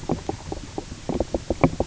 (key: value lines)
label: biophony, knock croak
recorder: SoundTrap 300